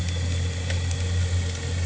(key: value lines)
label: anthrophony, boat engine
recorder: HydroMoth